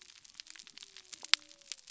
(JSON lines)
{"label": "biophony", "recorder": "SoundTrap 300"}